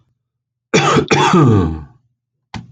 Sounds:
Cough